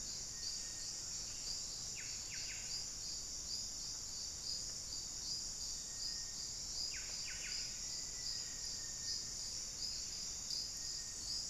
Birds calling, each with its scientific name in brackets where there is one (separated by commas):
Black-faced Antthrush (Formicarius analis), Buff-breasted Wren (Cantorchilus leucotis), Little Tinamou (Crypturellus soui)